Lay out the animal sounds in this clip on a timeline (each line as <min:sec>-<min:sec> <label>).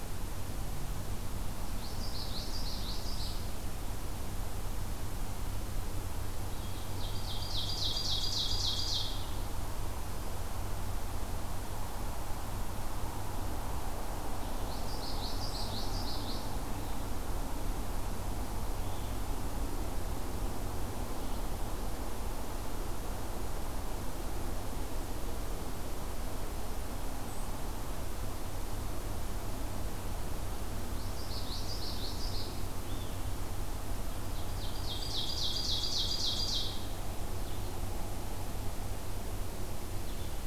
0:01.8-0:03.5 Common Yellowthroat (Geothlypis trichas)
0:06.6-0:09.3 Ovenbird (Seiurus aurocapilla)
0:14.3-0:21.6 Blue-headed Vireo (Vireo solitarius)
0:14.5-0:16.6 Common Yellowthroat (Geothlypis trichas)
0:31.0-0:32.7 Common Yellowthroat (Geothlypis trichas)
0:32.6-0:40.5 Blue-headed Vireo (Vireo solitarius)
0:34.4-0:36.9 Ovenbird (Seiurus aurocapilla)